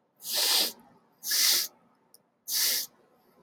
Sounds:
Sniff